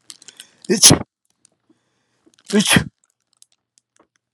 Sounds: Sneeze